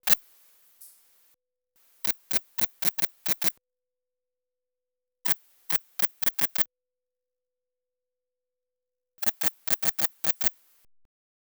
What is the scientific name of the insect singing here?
Tessellana tessellata